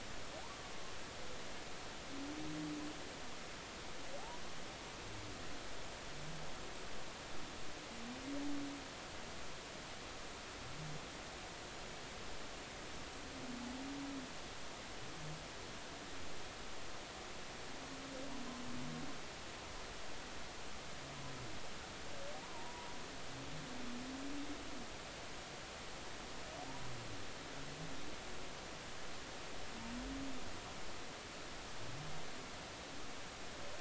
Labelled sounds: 22.4	22.9	humpback whale, 0.86 to 1.1 kHz

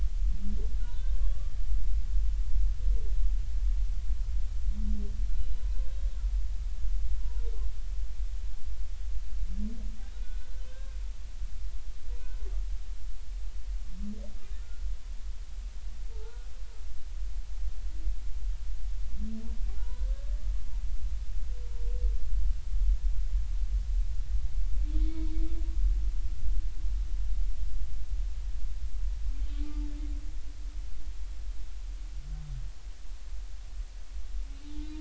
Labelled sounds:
0.8	1.6	humpback whale, 1.0 to 3.4 kHz
7.2	7.5	humpback whale, 0.90 to 1.0 kHz
10.0	11.0	humpback whale, 1.4 to 3.9 kHz
14.6	14.8	humpback whale, 1.3 to 1.5 kHz
16.1	16.5	humpback whale, 0.83 to 1.5 kHz
19.7	20.4	humpback whale, 0.83 to 1.8 kHz
25.0	25.3	humpback whale, 2.1 to 2.3 kHz
29.6	29.9	humpback whale, 0.86 to 0.93 kHz
34.6	34.9	humpback whale, 0.83 to 4.0 kHz

